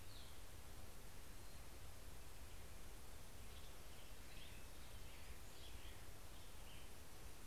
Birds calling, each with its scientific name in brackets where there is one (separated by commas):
Cassin's Vireo (Vireo cassinii)